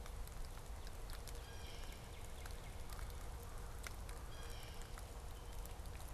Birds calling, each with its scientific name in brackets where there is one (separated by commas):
Northern Cardinal (Cardinalis cardinalis), Blue Jay (Cyanocitta cristata)